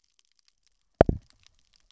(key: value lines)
label: biophony
recorder: SoundTrap 300